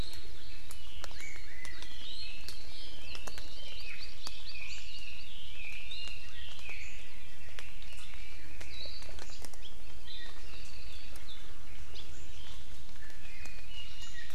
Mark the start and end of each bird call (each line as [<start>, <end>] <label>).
[1.09, 7.19] Chinese Hwamei (Garrulax canorus)
[3.49, 5.29] Hawaii Akepa (Loxops coccineus)
[8.69, 9.09] Hawaii Akepa (Loxops coccineus)
[10.39, 11.19] Apapane (Himatione sanguinea)
[12.99, 14.29] Iiwi (Drepanis coccinea)